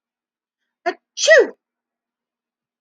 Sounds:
Sneeze